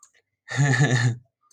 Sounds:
Laughter